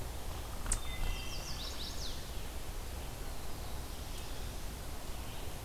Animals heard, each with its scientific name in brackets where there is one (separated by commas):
Chestnut-sided Warbler (Setophaga pensylvanica), Eastern Chipmunk (Tamias striatus), Red-eyed Vireo (Vireo olivaceus), Wood Thrush (Hylocichla mustelina)